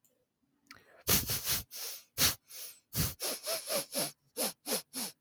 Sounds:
Sniff